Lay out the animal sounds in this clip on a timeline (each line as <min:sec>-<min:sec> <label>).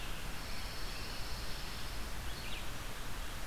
0:00.0-0:03.5 Red-eyed Vireo (Vireo olivaceus)
0:00.2-0:02.1 Pine Warbler (Setophaga pinus)